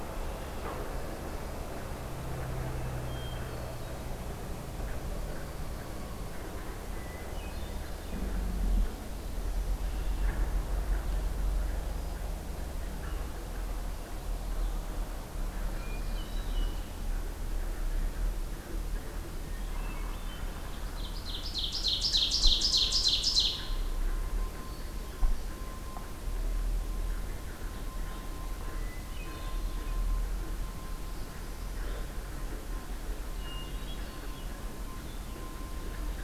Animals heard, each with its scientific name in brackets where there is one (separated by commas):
Red-winged Blackbird (Agelaius phoeniceus), Hermit Thrush (Catharus guttatus), Ovenbird (Seiurus aurocapilla)